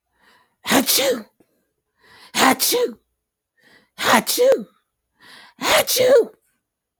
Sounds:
Sneeze